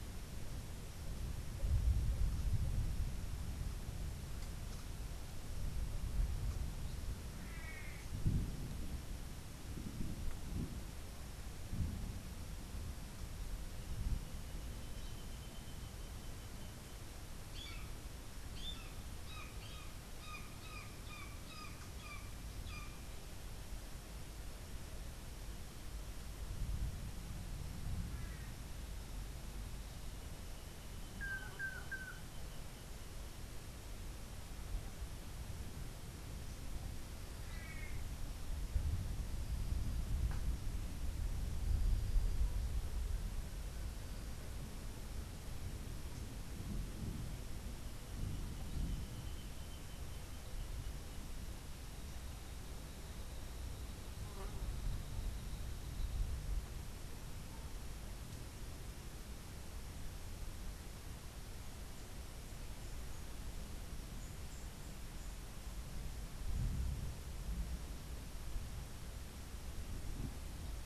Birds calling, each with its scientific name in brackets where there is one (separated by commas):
Long-tailed Manakin (Chiroxiphia linearis), Brown Jay (Psilorhinus morio)